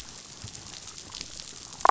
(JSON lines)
{"label": "biophony, damselfish", "recorder": "SoundTrap 500"}